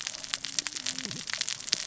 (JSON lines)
{"label": "biophony, cascading saw", "recorder": "SoundTrap 600 or HydroMoth"}